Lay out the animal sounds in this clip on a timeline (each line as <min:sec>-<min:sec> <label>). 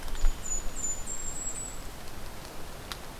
0:00.1-0:01.8 Golden-crowned Kinglet (Regulus satrapa)